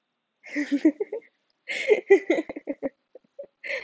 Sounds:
Laughter